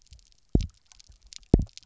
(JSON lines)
{"label": "biophony, double pulse", "recorder": "SoundTrap 300"}